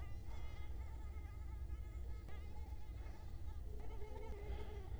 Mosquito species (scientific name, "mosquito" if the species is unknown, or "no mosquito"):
Culex quinquefasciatus